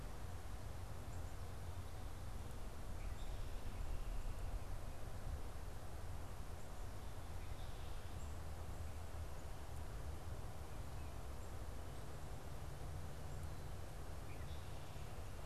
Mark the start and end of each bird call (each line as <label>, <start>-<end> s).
Black-capped Chickadee (Poecile atricapillus), 0.0-15.5 s